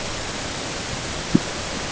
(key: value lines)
label: ambient
recorder: HydroMoth